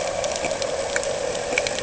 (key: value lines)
label: anthrophony, boat engine
recorder: HydroMoth